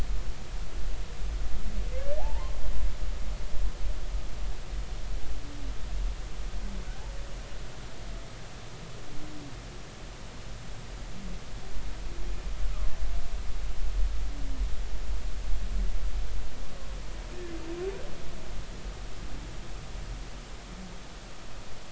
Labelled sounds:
2.2	2.6	humpback whale, 0.80 to 1.1 kHz

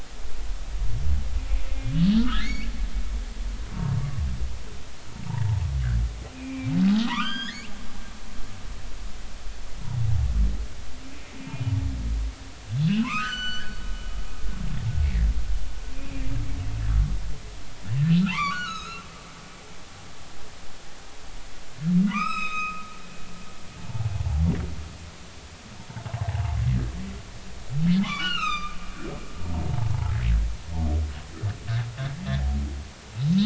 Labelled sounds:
2.2	2.7	humpback whale, 1.1 to 2.9 kHz
6.3	6.7	humpback whale, 2.3 to 2.7 kHz
7.0	7.7	humpback whale, 0.90 to 6.9 kHz
11.4	11.6	humpback whale, 2.6 to 2.8 kHz
12.8	13.8	humpback whale, 0.93 to 7.6 kHz
15.0	16.3	humpback whale, 1.7 to 2.8 kHz
18.3	19.1	humpback whale, 0.83 to 6.7 kHz
22.0	22.8	humpback whale, 0.93 to 7.9 kHz
23.8	24.1	humpback whale, 0.80 to 0.96 kHz
26.3	26.6	humpback whale, 0.80 to 0.96 kHz
28.0	28.8	humpback whale, 0.99 to 6.5 kHz

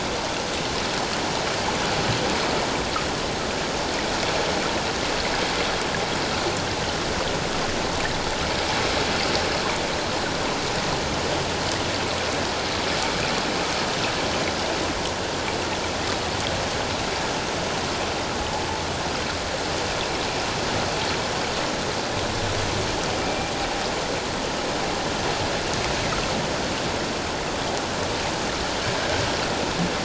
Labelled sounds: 23.2	23.5	humpback whale, 2.3 to 2.4 kHz

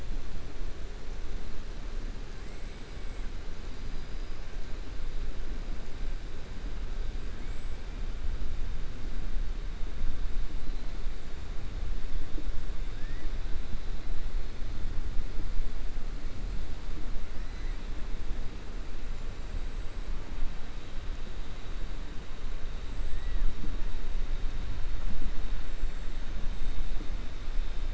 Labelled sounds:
12.9	13.3	killer whale, 1.6 to 2.9 kHz

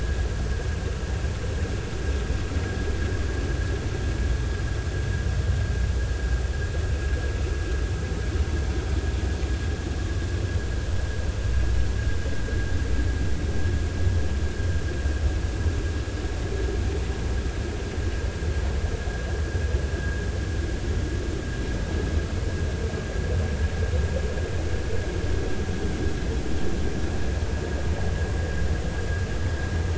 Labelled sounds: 20.0	20.3	vessel noise, 1.5 to 1.7 kHz

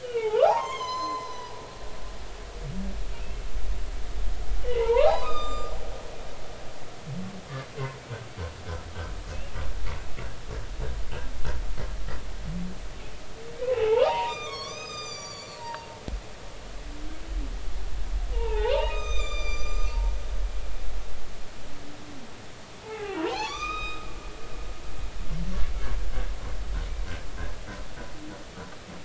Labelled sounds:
0.0	1.5	humpback whale, 0.80 to 7.3 kHz
3.2	3.5	humpback whale, 2.5 to 2.8 kHz
4.6	5.7	humpback whale, 0.80 to 7.3 kHz
13.5	15.9	humpback whale, 0.80 to 7.6 kHz
18.3	19.9	humpback whale, 0.80 to 7.5 kHz
22.8	24.1	humpback whale, 0.80 to 6.3 kHz

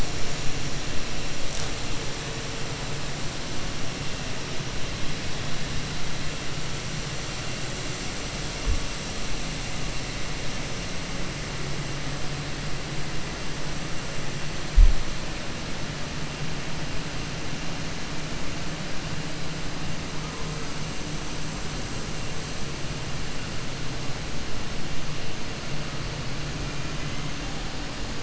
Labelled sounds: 26.9	27.2	vessel noise, 2.0 to 3.1 kHz

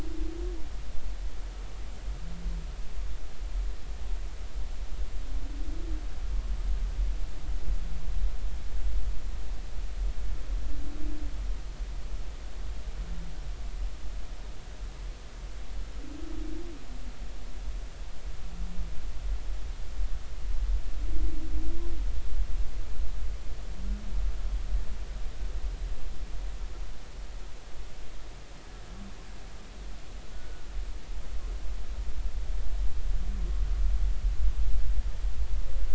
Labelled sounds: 30.3	30.7	humpback whale, 1.3 to 1.5 kHz

